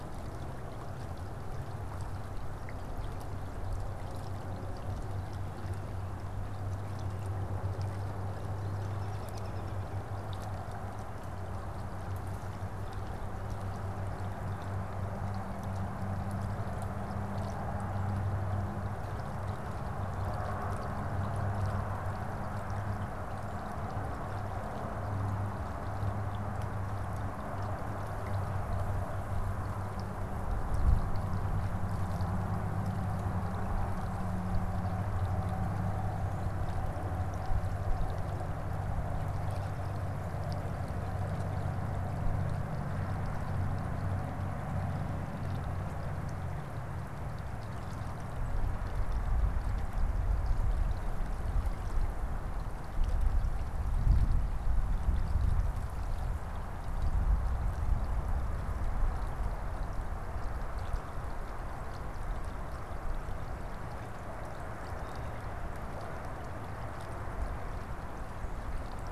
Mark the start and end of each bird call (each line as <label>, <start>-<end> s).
American Robin (Turdus migratorius), 8.5-10.1 s